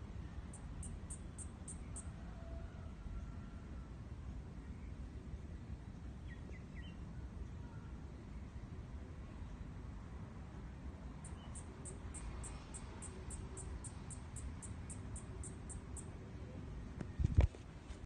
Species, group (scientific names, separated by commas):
Yoyetta celis, Cicadidae